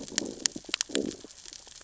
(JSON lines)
{"label": "biophony, growl", "recorder": "SoundTrap 600 or HydroMoth"}